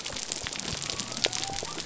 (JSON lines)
{"label": "biophony", "recorder": "SoundTrap 300"}